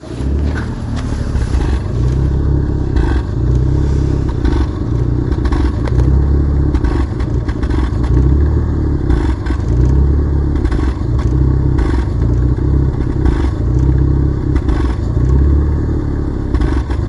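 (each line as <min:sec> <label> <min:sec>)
0:00.1 An engine revs deeply. 0:02.9
0:03.0 Abrupt, rough rattling of an engine. 0:03.3
0:03.4 Coarse, deep engine revving. 0:06.7
0:04.4 Abrupt, rough rattling of an engine. 0:04.8
0:05.4 Abrupt, rough rattling of an engine. 0:05.8
0:06.8 Abrupt, rough rattling of an engine. 0:08.0
0:08.0 Coarse, deep engine revving. 0:14.3
0:09.1 Abrupt, rough rattling of an engine. 0:09.4
0:10.5 Abrupt, rough rattling of an engine. 0:10.9
0:11.8 Abrupt, rough rattling of an engine. 0:12.2
0:13.3 Abrupt, rough rattling of an engine. 0:13.5
0:14.4 Abrupt, rough rattling of an engine. 0:15.0
0:15.1 Coarse, deep engine revving. 0:16.5
0:16.5 Abrupt, rough rattling of an engine. 0:17.0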